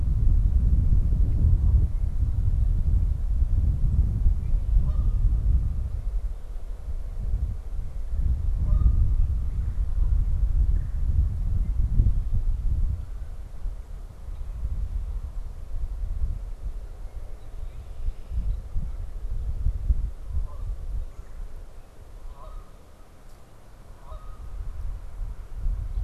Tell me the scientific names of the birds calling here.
Agelaius phoeniceus, Branta canadensis, Melanerpes carolinus